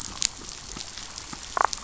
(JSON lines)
{"label": "biophony, damselfish", "recorder": "SoundTrap 500"}